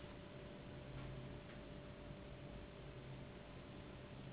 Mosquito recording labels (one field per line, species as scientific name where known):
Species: Anopheles gambiae s.s.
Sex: female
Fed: unfed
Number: one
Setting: insect culture